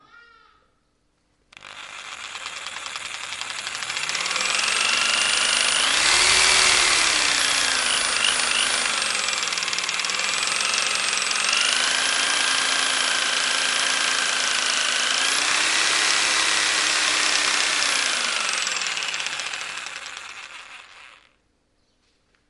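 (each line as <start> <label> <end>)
0.0 A high-pitched, prolonged sound occurs. 1.0
1.5 A power saw sounds with varying intensity. 21.5
21.7 A bird chirps. 22.5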